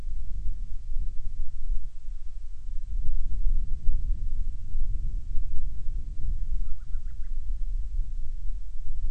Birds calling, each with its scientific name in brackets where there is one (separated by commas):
Band-rumped Storm-Petrel (Hydrobates castro)